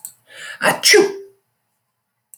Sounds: Sneeze